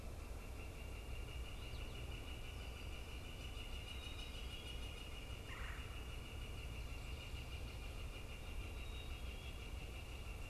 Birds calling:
Black-capped Chickadee (Poecile atricapillus), Northern Flicker (Colaptes auratus)

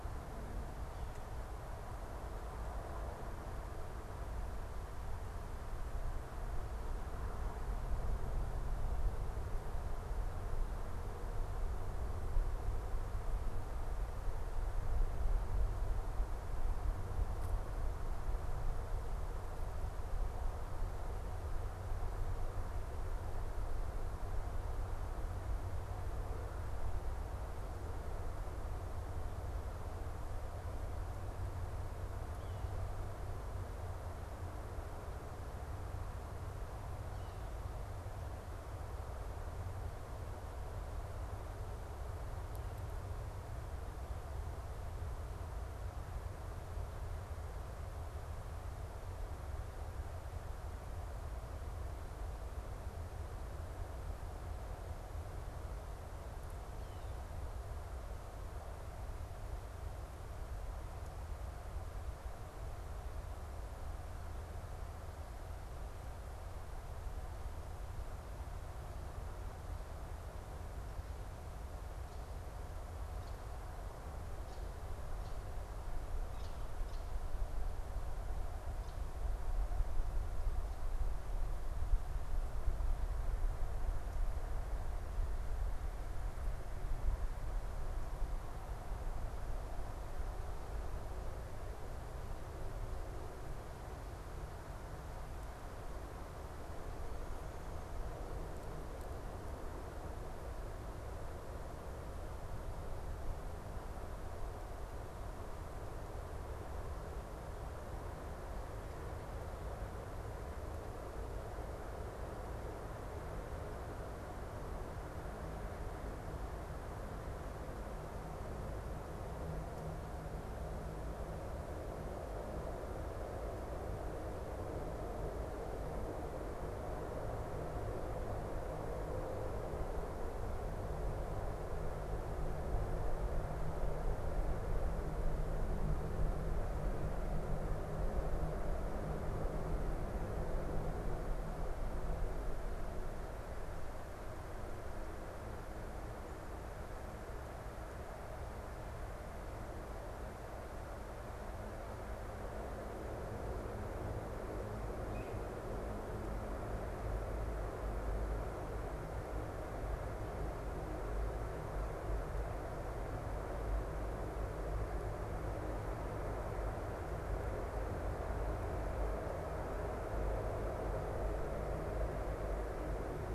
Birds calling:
unidentified bird, Red-winged Blackbird (Agelaius phoeniceus)

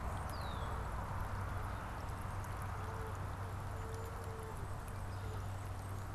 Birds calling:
Canada Goose (Branta canadensis), Red-winged Blackbird (Agelaius phoeniceus)

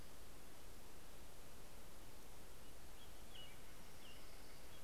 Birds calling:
Orange-crowned Warbler (Leiothlypis celata), Steller's Jay (Cyanocitta stelleri), American Robin (Turdus migratorius)

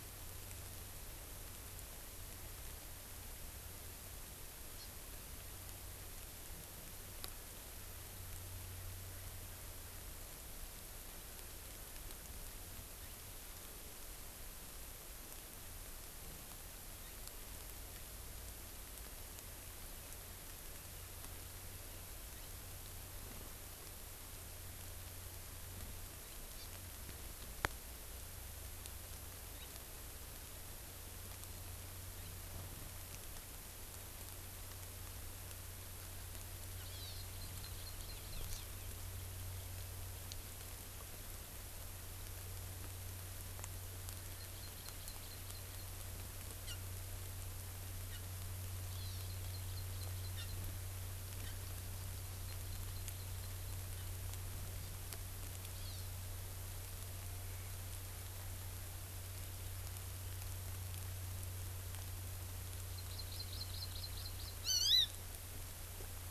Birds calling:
Hawaii Amakihi (Chlorodrepanis virens)

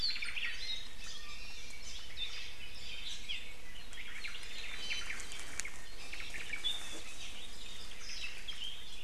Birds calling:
Warbling White-eye (Zosterops japonicus), Iiwi (Drepanis coccinea), Omao (Myadestes obscurus), Apapane (Himatione sanguinea)

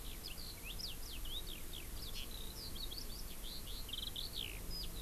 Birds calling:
Eurasian Skylark (Alauda arvensis), Hawaii Amakihi (Chlorodrepanis virens)

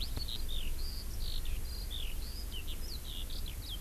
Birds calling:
Eurasian Skylark (Alauda arvensis)

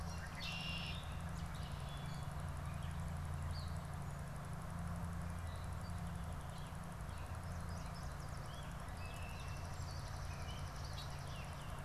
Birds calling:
Yellow Warbler (Setophaga petechia), Gray Catbird (Dumetella carolinensis), Red-winged Blackbird (Agelaius phoeniceus), Swamp Sparrow (Melospiza georgiana), Wood Thrush (Hylocichla mustelina)

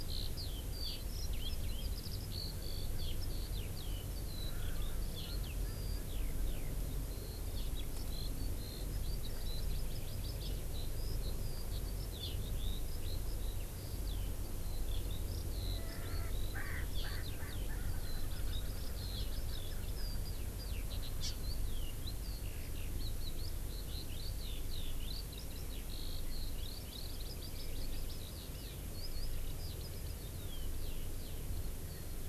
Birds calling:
Hawaii Amakihi (Chlorodrepanis virens), Erckel's Francolin (Pternistis erckelii), Eurasian Skylark (Alauda arvensis)

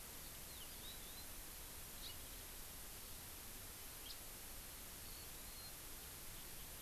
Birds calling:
House Finch (Haemorhous mexicanus), Warbling White-eye (Zosterops japonicus)

